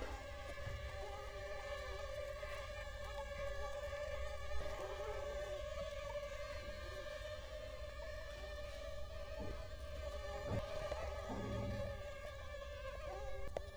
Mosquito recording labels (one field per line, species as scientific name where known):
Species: Culex quinquefasciatus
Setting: cup